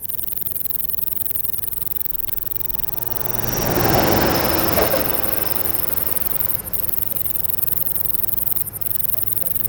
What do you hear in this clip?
Bicolorana bicolor, an orthopteran